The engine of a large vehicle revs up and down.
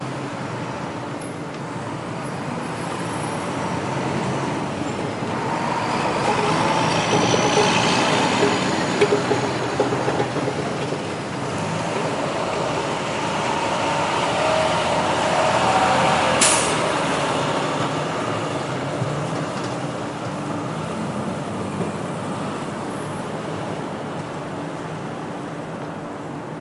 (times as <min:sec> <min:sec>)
0:05.3 0:19.8